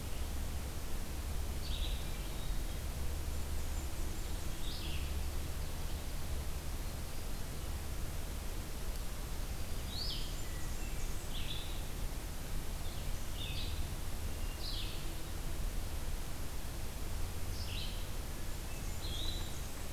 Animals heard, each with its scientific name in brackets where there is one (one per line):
Hermit Thrush (Catharus guttatus)
Red-eyed Vireo (Vireo olivaceus)
Blackburnian Warbler (Setophaga fusca)